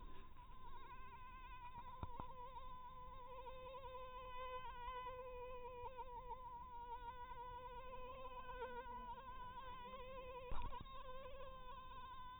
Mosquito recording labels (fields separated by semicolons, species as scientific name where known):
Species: mosquito; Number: one; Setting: cup